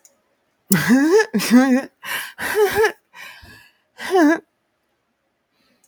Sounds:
Laughter